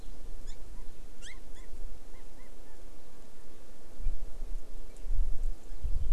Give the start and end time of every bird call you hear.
[0.50, 0.60] Hawaii Amakihi (Chlorodrepanis virens)
[1.20, 1.70] Hawaii Amakihi (Chlorodrepanis virens)
[2.10, 2.80] Chinese Hwamei (Garrulax canorus)

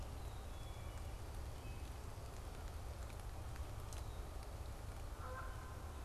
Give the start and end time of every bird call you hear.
[0.00, 1.20] Black-capped Chickadee (Poecile atricapillus)
[1.40, 2.00] Wood Thrush (Hylocichla mustelina)
[4.90, 6.00] Canada Goose (Branta canadensis)

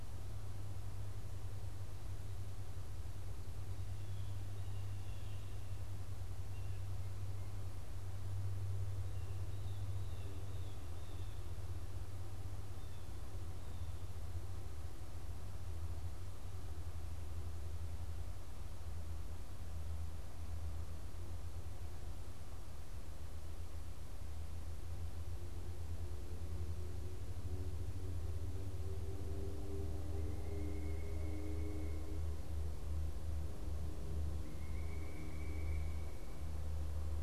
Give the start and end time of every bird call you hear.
[3.84, 14.44] Blue Jay (Cyanocitta cristata)
[30.04, 36.84] Pileated Woodpecker (Dryocopus pileatus)

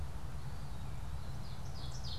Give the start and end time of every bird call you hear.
[0.00, 1.80] Eastern Wood-Pewee (Contopus virens)
[1.30, 2.19] Ovenbird (Seiurus aurocapilla)

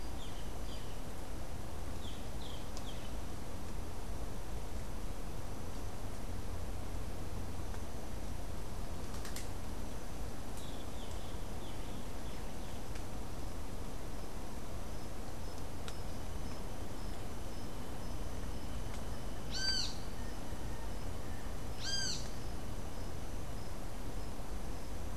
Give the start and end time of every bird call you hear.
[0.00, 3.37] Boat-billed Flycatcher (Megarynchus pitangua)
[10.57, 13.27] Boat-billed Flycatcher (Megarynchus pitangua)
[19.37, 22.37] Great Kiskadee (Pitangus sulphuratus)

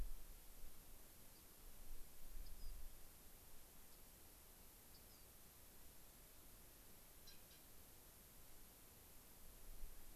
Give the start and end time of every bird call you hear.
[1.30, 1.40] White-crowned Sparrow (Zonotrichia leucophrys)
[2.40, 2.70] Rock Wren (Salpinctes obsoletus)
[3.90, 4.00] Rock Wren (Salpinctes obsoletus)
[4.90, 5.30] Rock Wren (Salpinctes obsoletus)

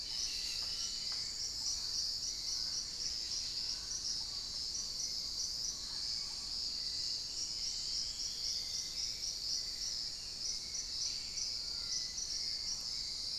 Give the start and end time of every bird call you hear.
[0.00, 1.04] Cobalt-winged Parakeet (Brotogeris cyanoptera)
[0.00, 2.24] Fasciated Antshrike (Cymbilaimus lineatus)
[0.00, 6.74] unidentified bird
[3.74, 6.94] Black-tailed Trogon (Trogon melanurus)
[6.44, 9.34] Dusky-throated Antshrike (Thamnomanes ardesiacus)
[7.34, 13.38] Hauxwell's Thrush (Turdus hauxwelli)
[10.84, 11.64] unidentified bird
[11.44, 13.38] Musician Wren (Cyphorhinus arada)

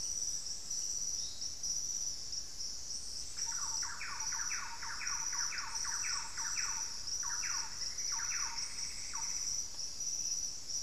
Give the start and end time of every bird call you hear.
[3.25, 9.45] Thrush-like Wren (Campylorhynchus turdinus)
[7.45, 9.55] Plumbeous Antbird (Myrmelastes hyperythrus)

